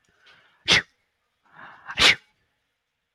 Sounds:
Sneeze